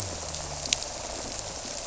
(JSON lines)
{"label": "biophony", "recorder": "SoundTrap 300"}